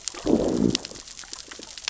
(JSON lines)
{"label": "biophony, growl", "recorder": "SoundTrap 600 or HydroMoth"}